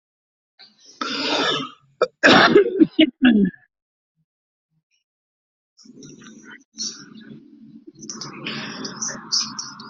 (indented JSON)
{
  "expert_labels": [
    {
      "quality": "poor",
      "cough_type": "wet",
      "dyspnea": false,
      "wheezing": false,
      "stridor": false,
      "choking": false,
      "congestion": false,
      "nothing": true,
      "diagnosis": "lower respiratory tract infection",
      "severity": "mild"
    }
  ],
  "age": 41,
  "gender": "male",
  "respiratory_condition": false,
  "fever_muscle_pain": false,
  "status": "COVID-19"
}